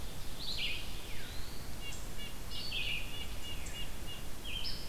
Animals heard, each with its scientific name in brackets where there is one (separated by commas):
Eastern Wood-Pewee (Contopus virens), Red-breasted Nuthatch (Sitta canadensis), Veery (Catharus fuscescens), Red-eyed Vireo (Vireo olivaceus)